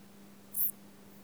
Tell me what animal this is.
Eupholidoptera latens, an orthopteran